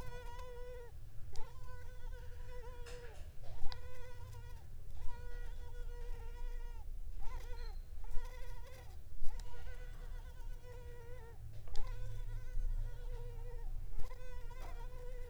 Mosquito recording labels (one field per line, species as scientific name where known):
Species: Culex pipiens complex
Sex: female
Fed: unfed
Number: one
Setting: cup